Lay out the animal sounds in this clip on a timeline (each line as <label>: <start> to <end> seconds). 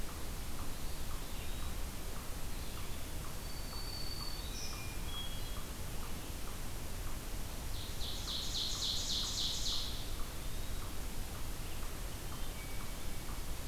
Eastern Wood-Pewee (Contopus virens): 0.6 to 1.8 seconds
Black-throated Green Warbler (Setophaga virens): 3.0 to 4.8 seconds
Hermit Thrush (Catharus guttatus): 4.4 to 5.7 seconds
Ovenbird (Seiurus aurocapilla): 7.5 to 10.1 seconds
Eastern Wood-Pewee (Contopus virens): 9.8 to 11.0 seconds
Hermit Thrush (Catharus guttatus): 12.1 to 13.5 seconds